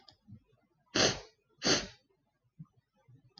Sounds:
Sniff